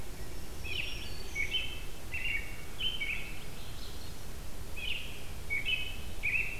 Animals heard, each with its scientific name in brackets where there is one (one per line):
American Robin (Turdus migratorius)
Black-throated Green Warbler (Setophaga virens)